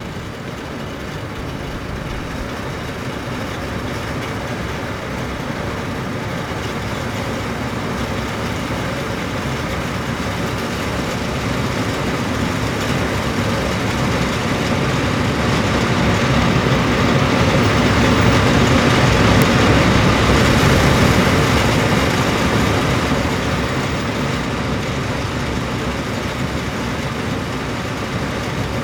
are all machines turned off?
no